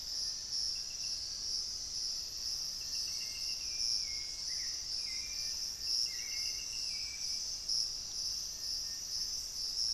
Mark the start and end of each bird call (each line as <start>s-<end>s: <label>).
0.0s-9.9s: Little Tinamou (Crypturellus soui)
1.5s-3.3s: Black-faced Antthrush (Formicarius analis)
2.6s-9.9s: Hauxwell's Thrush (Turdus hauxwelli)